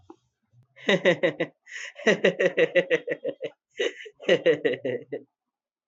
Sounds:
Laughter